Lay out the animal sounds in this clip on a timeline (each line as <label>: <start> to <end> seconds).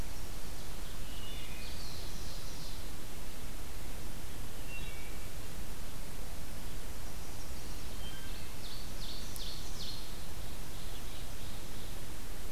Wood Thrush (Hylocichla mustelina): 0.8 to 1.7 seconds
Black-throated Blue Warbler (Setophaga caerulescens): 1.6 to 2.9 seconds
Wood Thrush (Hylocichla mustelina): 4.4 to 5.3 seconds
Chestnut-sided Warbler (Setophaga pensylvanica): 6.9 to 8.1 seconds
Wood Thrush (Hylocichla mustelina): 7.8 to 8.7 seconds
Ovenbird (Seiurus aurocapilla): 8.5 to 12.1 seconds